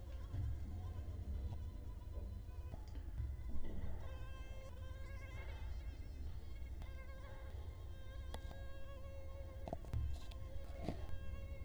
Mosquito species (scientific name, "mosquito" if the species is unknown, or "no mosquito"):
Culex quinquefasciatus